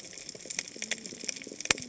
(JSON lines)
{"label": "biophony, cascading saw", "recorder": "HydroMoth"}